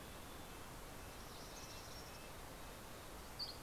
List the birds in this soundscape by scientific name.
Poecile gambeli, Sitta canadensis, Empidonax oberholseri